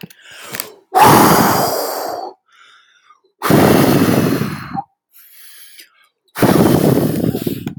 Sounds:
Sigh